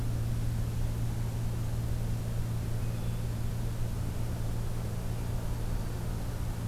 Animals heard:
forest ambience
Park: Acadia National Park